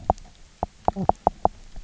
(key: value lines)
label: biophony, knock croak
recorder: SoundTrap 300